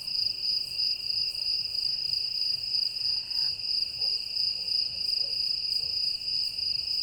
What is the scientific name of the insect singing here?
Gryllus bimaculatus